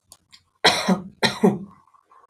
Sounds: Cough